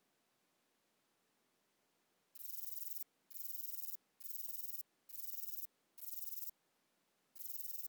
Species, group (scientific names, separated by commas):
Rhacocleis lithoscirtetes, Orthoptera